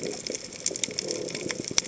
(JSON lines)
{"label": "biophony", "recorder": "HydroMoth"}